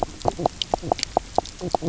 {"label": "biophony, knock croak", "recorder": "SoundTrap 300"}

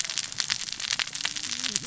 {"label": "biophony, cascading saw", "recorder": "SoundTrap 600 or HydroMoth"}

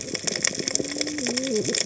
{"label": "biophony, cascading saw", "recorder": "HydroMoth"}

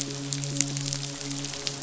{"label": "biophony, midshipman", "recorder": "SoundTrap 500"}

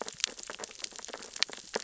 {"label": "biophony, sea urchins (Echinidae)", "recorder": "SoundTrap 600 or HydroMoth"}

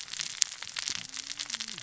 {"label": "biophony, cascading saw", "recorder": "SoundTrap 600 or HydroMoth"}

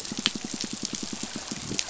{"label": "biophony, pulse", "recorder": "SoundTrap 500"}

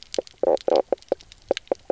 {"label": "biophony, knock croak", "recorder": "SoundTrap 300"}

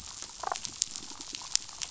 {"label": "biophony", "recorder": "SoundTrap 500"}
{"label": "biophony, damselfish", "recorder": "SoundTrap 500"}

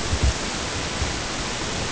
{"label": "ambient", "recorder": "HydroMoth"}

